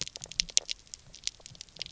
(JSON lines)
{"label": "biophony, knock croak", "recorder": "SoundTrap 300"}